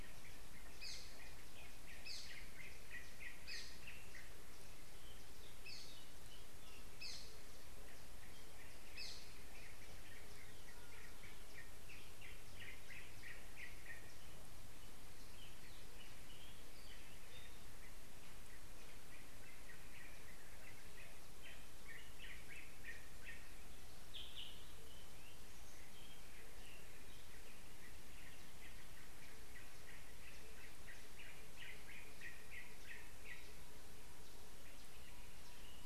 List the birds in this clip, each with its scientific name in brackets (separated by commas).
Yellow-whiskered Greenbul (Eurillas latirostris)